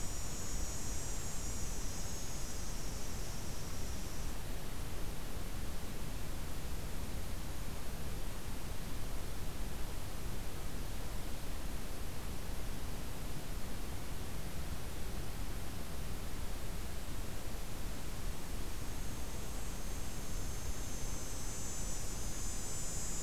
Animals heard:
forest ambience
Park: Katahdin Woods and Waters National Monument